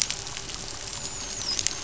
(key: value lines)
label: biophony, dolphin
recorder: SoundTrap 500